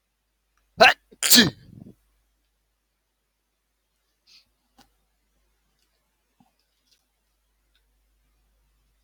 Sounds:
Sneeze